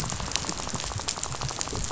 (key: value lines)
label: biophony, rattle
recorder: SoundTrap 500